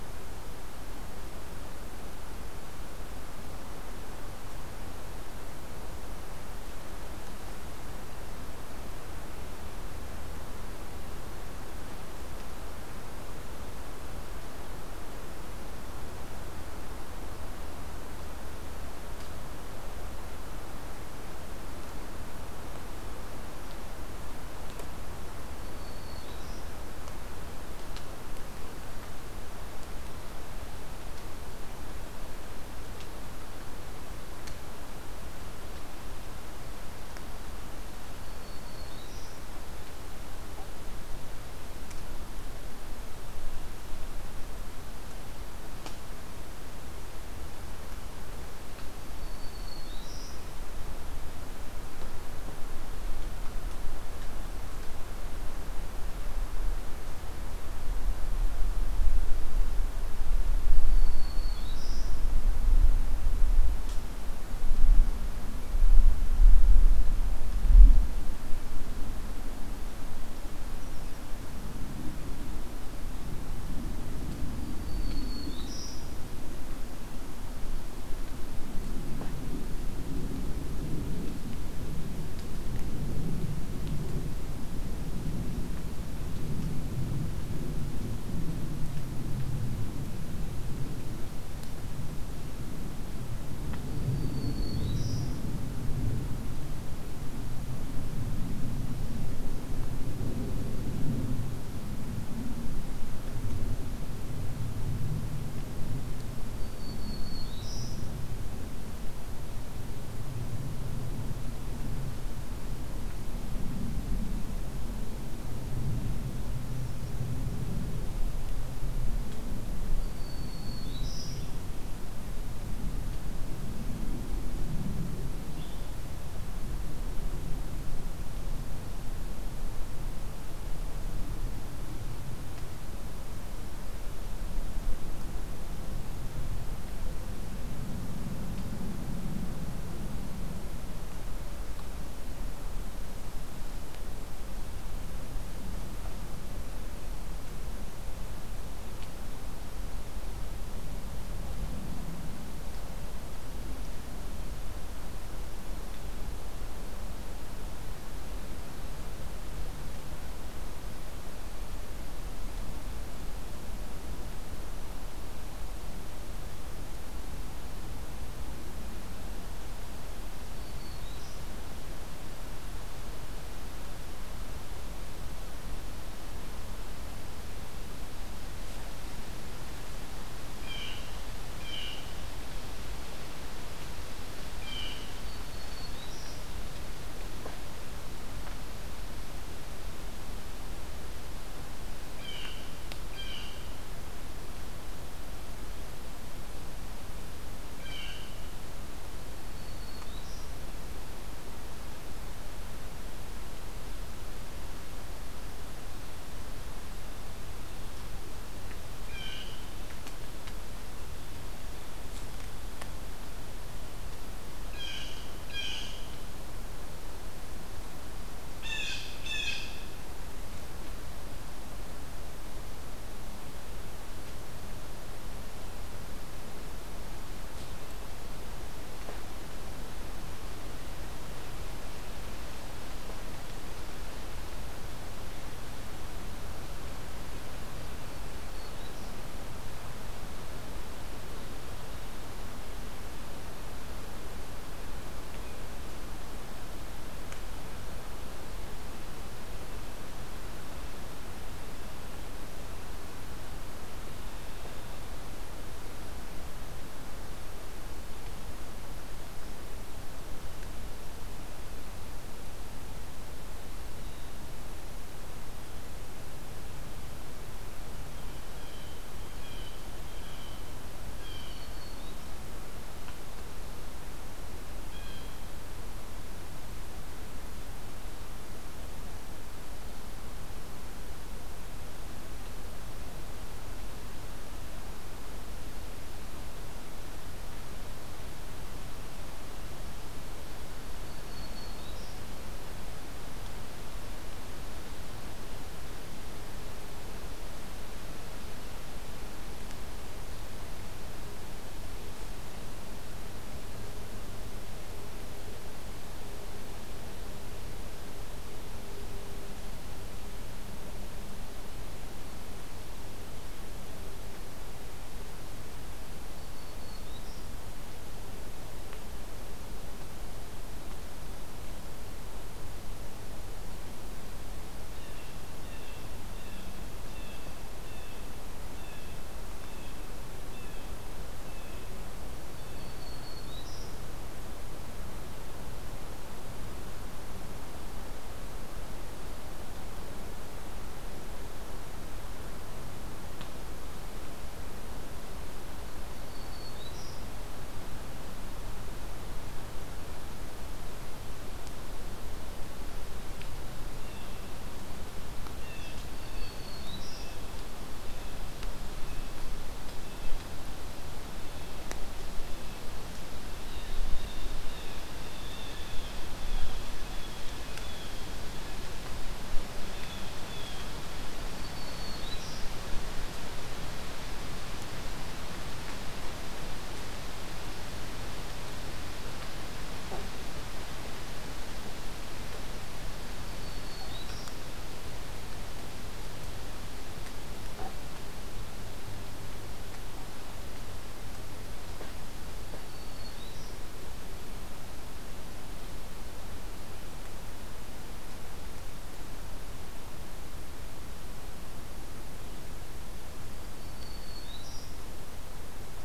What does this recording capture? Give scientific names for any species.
Setophaga virens, Cyanocitta cristata